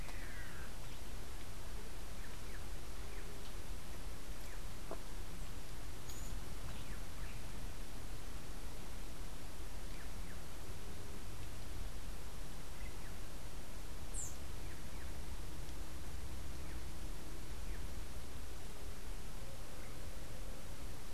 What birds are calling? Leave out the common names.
unidentified bird